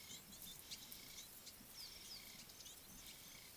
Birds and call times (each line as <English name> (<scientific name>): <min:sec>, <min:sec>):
Ring-necked Dove (Streptopelia capicola): 0:01.1